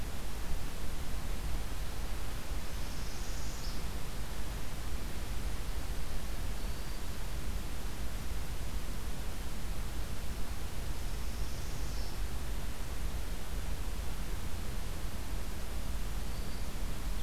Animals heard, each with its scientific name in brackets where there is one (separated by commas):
Northern Parula (Setophaga americana), Black-throated Green Warbler (Setophaga virens)